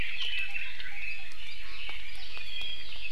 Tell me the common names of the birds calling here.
Red-billed Leiothrix, Apapane